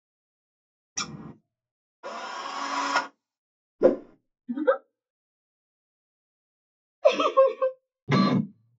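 First, scissors are heard. Then a drill is audible. Next, whooshing can be heard. Afterwards, someone giggles. Later, giggling is audible. Finally, the sound of a printer is heard.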